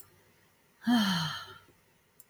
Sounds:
Sigh